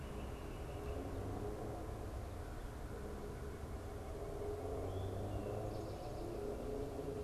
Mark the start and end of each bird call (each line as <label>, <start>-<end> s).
Northern Flicker (Colaptes auratus), 0.0-1.1 s
Eastern Towhee (Pipilo erythrophthalmus), 4.6-5.9 s